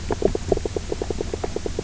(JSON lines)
{"label": "biophony, knock croak", "recorder": "SoundTrap 300"}